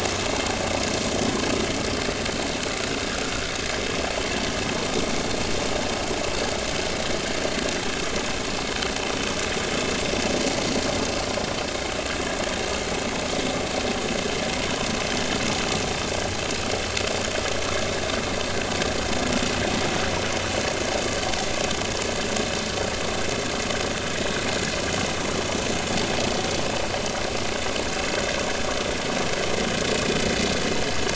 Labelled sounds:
24.2	24.4	vessel noise, 3.7 to 3.9 kHz

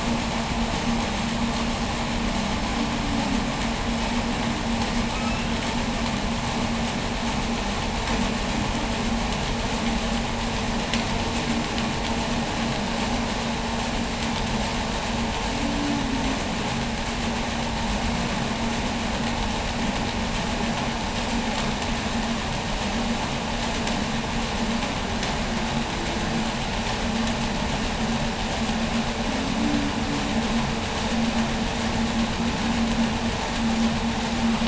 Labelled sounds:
4.8	5.6	humpback whale, 1.2 to 5.6 kHz
15.4	16.5	humpback whale, 0.20 to 0.41 kHz
25.0	27.0	humpback whale, 0.20 to 0.69 kHz
29.0	30.5	humpback whale, 0.20 to 0.39 kHz

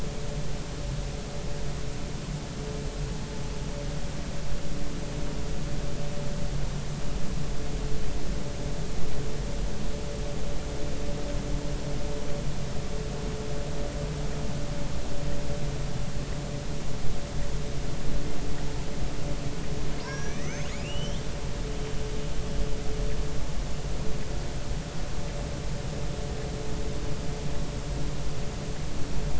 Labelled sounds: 20.0	21.2	killer whale, northern resident, R clan, call N32ii, 1.5 to 7.1 kHz

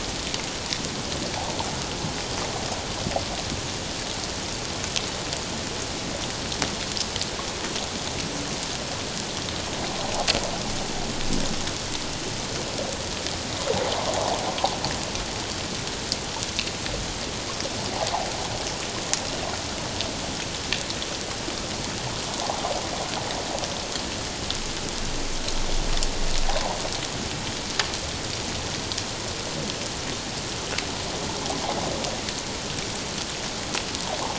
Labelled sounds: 22.3	22.6	water noise, 0.78 to 1.1 kHz

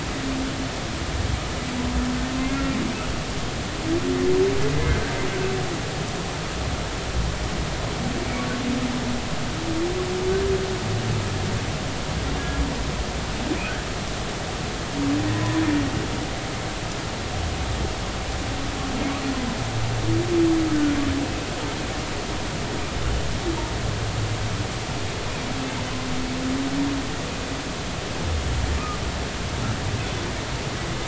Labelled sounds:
2.4	2.7	humpback whale, 2.0 to 2.2 kHz
15.3	15.6	humpback whale, 0.96 to 1.1 kHz

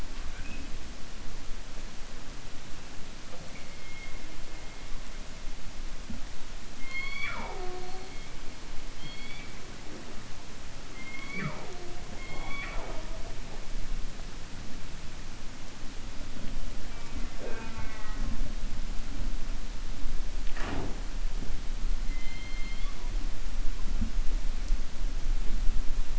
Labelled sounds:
8.9	9.5	killer whale, 2.2 to 4.7 kHz
22.0	23.0	killer whale, 1.1 to 4.3 kHz

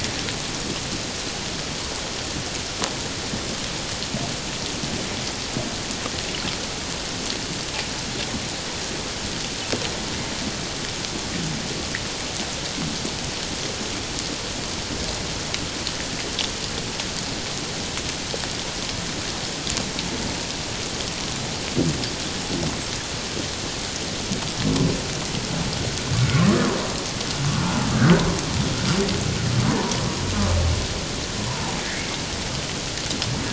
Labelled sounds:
26.5	27.8	humpback whale, 0.94 to 1.5 kHz
29.7	30.0	humpback whale, 0.88 to 1.0 kHz
31.5	32.1	humpback whale, 0.78 to 2.2 kHz

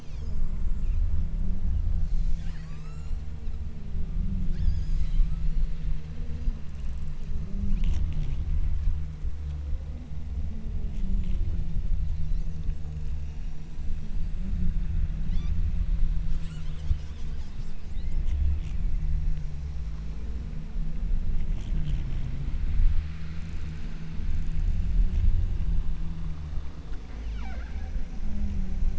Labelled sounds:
0.0	0.5	killer whale, southern Alaska resident, 2.1 to 6.9 kHz
2.1	3.5	killer whale, southern Alaska resident, 0.76 to 8.0 kHz
4.6	5.9	killer whale, southern Alaska resident, 0.85 to 8.0 kHz
15.3	15.8	killer whale, southern Alaska resident, 1.6 to 7.7 kHz
27.4	28.1	killer whale, southern Alaska resident, 0.51 to 6.4 kHz

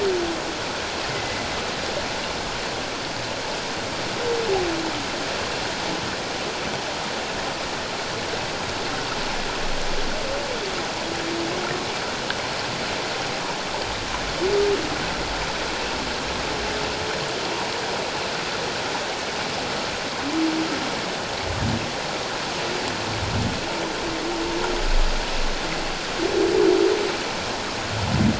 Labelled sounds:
1.1	1.5	humpback whale, 1.9 to 2.1 kHz

